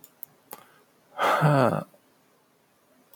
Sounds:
Sigh